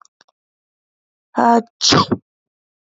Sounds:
Sneeze